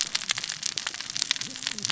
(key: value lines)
label: biophony, cascading saw
recorder: SoundTrap 600 or HydroMoth